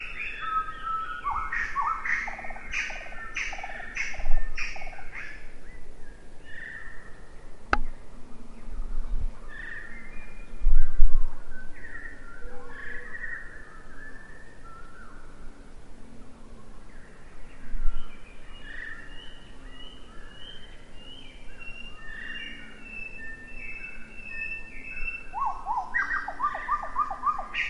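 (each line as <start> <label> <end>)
0.0 Different birds singing in nature. 27.7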